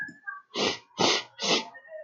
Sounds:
Sniff